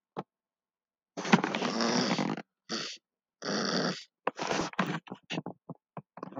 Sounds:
Throat clearing